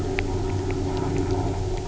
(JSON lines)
{"label": "anthrophony, boat engine", "recorder": "SoundTrap 300"}